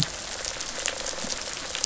{"label": "biophony, rattle response", "recorder": "SoundTrap 500"}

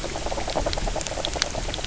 {"label": "biophony, knock croak", "recorder": "SoundTrap 300"}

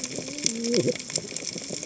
{"label": "biophony, cascading saw", "recorder": "HydroMoth"}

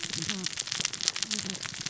{"label": "biophony, cascading saw", "recorder": "SoundTrap 600 or HydroMoth"}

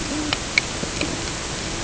{"label": "ambient", "recorder": "HydroMoth"}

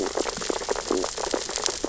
{"label": "biophony, sea urchins (Echinidae)", "recorder": "SoundTrap 600 or HydroMoth"}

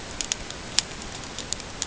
{"label": "ambient", "recorder": "HydroMoth"}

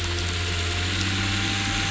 {"label": "anthrophony, boat engine", "recorder": "SoundTrap 500"}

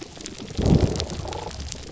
{"label": "biophony", "recorder": "SoundTrap 300"}
{"label": "biophony, damselfish", "recorder": "SoundTrap 300"}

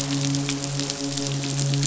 {"label": "biophony, midshipman", "recorder": "SoundTrap 500"}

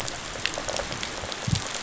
{"label": "biophony, rattle response", "recorder": "SoundTrap 500"}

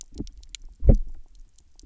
{"label": "biophony, double pulse", "recorder": "SoundTrap 300"}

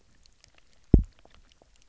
{"label": "biophony, double pulse", "recorder": "SoundTrap 300"}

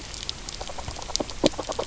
{"label": "biophony, knock croak", "recorder": "SoundTrap 300"}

